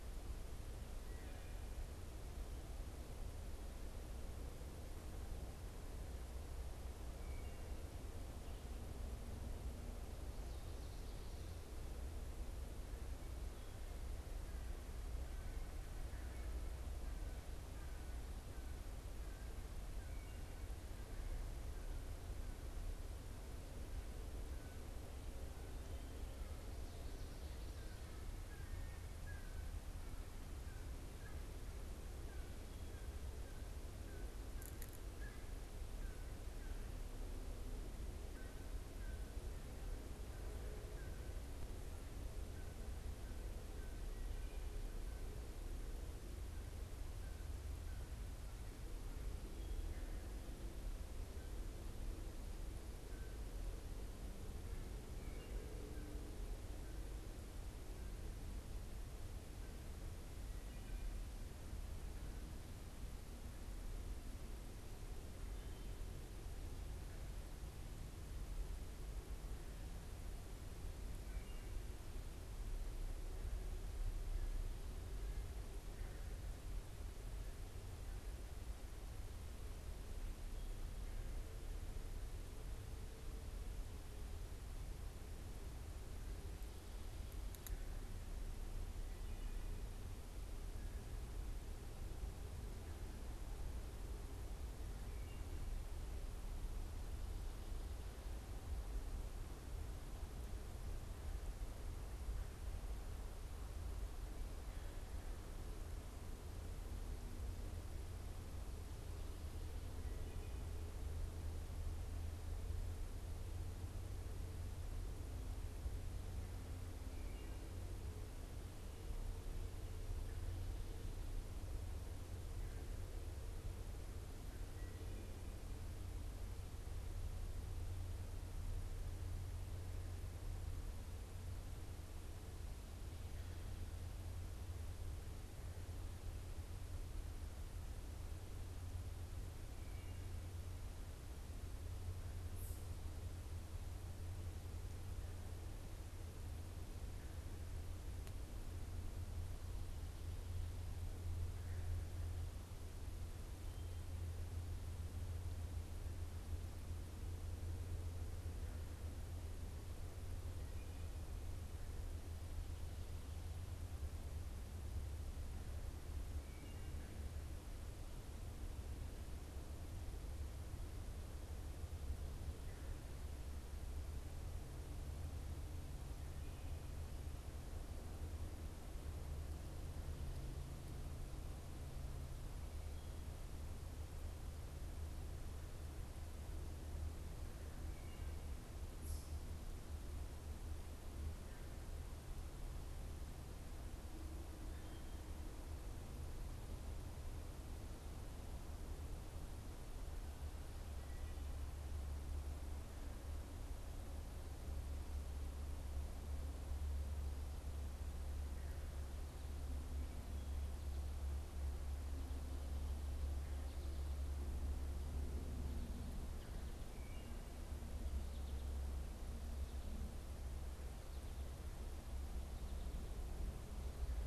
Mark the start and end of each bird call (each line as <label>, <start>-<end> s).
American Crow (Corvus brachyrhynchos), 14.2-20.1 s
American Crow (Corvus brachyrhynchos), 27.6-53.5 s
Wood Thrush (Hylocichla mustelina), 55.1-55.6 s
Wood Thrush (Hylocichla mustelina), 71.1-71.7 s
Wood Thrush (Hylocichla mustelina), 216.8-217.4 s